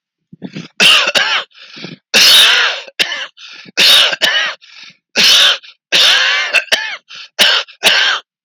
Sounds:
Cough